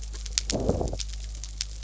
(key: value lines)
label: biophony
recorder: SoundTrap 300